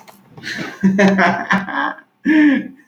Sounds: Laughter